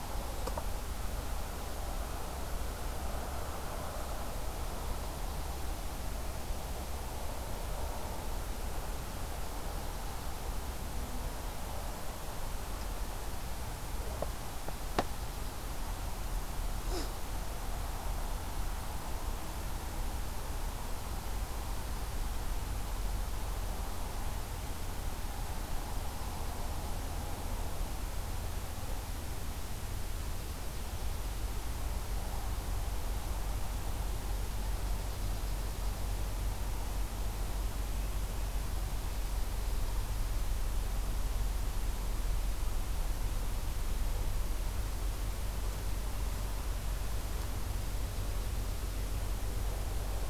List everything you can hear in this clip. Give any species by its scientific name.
Sitta canadensis